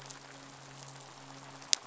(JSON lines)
{"label": "biophony, midshipman", "recorder": "SoundTrap 500"}
{"label": "biophony", "recorder": "SoundTrap 500"}